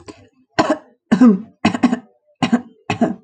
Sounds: Throat clearing